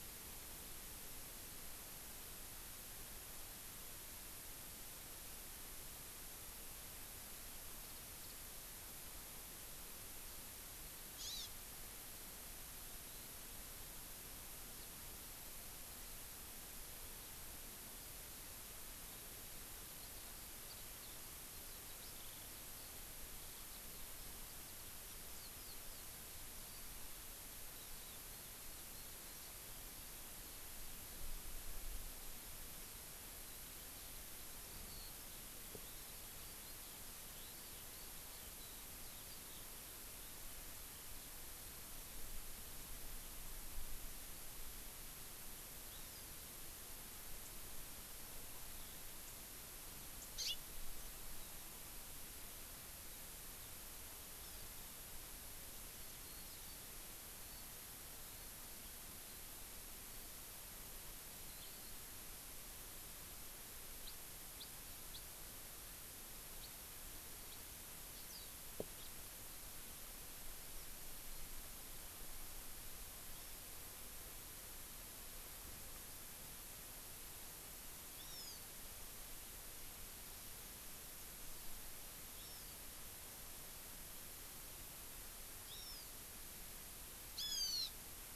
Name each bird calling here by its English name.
Warbling White-eye, Hawaii Amakihi, Eurasian Skylark, Hawaiian Hawk, House Finch